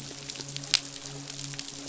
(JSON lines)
{"label": "biophony, midshipman", "recorder": "SoundTrap 500"}
{"label": "biophony, croak", "recorder": "SoundTrap 500"}